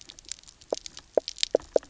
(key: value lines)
label: biophony, knock croak
recorder: SoundTrap 300